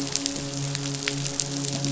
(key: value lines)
label: biophony, midshipman
recorder: SoundTrap 500